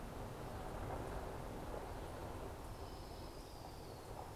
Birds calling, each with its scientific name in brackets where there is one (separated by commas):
Hermit Warbler (Setophaga occidentalis), Orange-crowned Warbler (Leiothlypis celata)